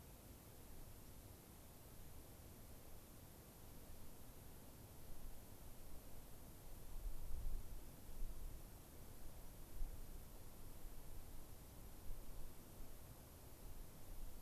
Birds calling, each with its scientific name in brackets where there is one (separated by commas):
White-crowned Sparrow (Zonotrichia leucophrys)